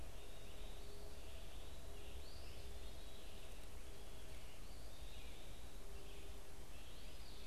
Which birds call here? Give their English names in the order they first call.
Eastern Wood-Pewee, Red-eyed Vireo, unidentified bird